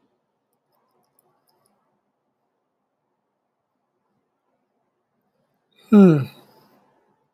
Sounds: Sigh